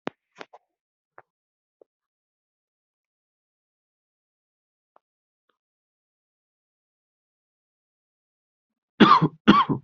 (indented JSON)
{
  "expert_labels": [
    {
      "quality": "good",
      "cough_type": "dry",
      "dyspnea": false,
      "wheezing": false,
      "stridor": false,
      "choking": false,
      "congestion": false,
      "nothing": true,
      "diagnosis": "healthy cough",
      "severity": "pseudocough/healthy cough"
    }
  ],
  "age": 22,
  "gender": "male",
  "respiratory_condition": false,
  "fever_muscle_pain": false,
  "status": "healthy"
}